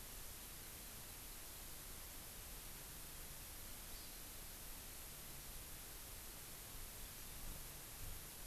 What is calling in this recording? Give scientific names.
Chlorodrepanis virens